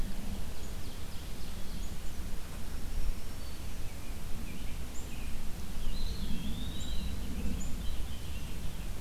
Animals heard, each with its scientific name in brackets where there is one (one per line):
American Robin (Turdus migratorius)
Ovenbird (Seiurus aurocapilla)
Black-throated Green Warbler (Setophaga virens)
Eastern Wood-Pewee (Contopus virens)